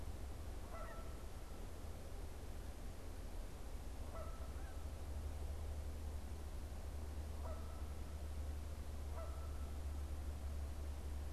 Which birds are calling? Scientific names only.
Branta canadensis, Anser caerulescens